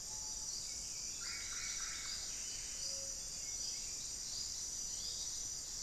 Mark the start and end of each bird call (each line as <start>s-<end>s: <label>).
0.0s-0.6s: Screaming Piha (Lipaugus vociferans)
0.0s-5.8s: Buff-throated Saltator (Saltator maximus)
0.0s-5.8s: Hauxwell's Thrush (Turdus hauxwelli)
1.0s-2.4s: Solitary Black Cacique (Cacicus solitarius)